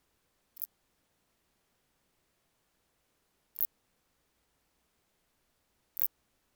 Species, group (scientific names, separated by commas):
Phaneroptera nana, Orthoptera